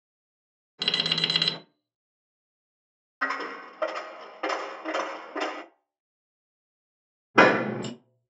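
At the start, an alarm can be heard. Next, about 3 seconds in, a coin drops. Finally, about 7 seconds in, the sound of a door is heard.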